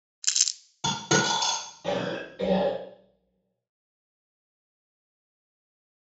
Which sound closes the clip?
cough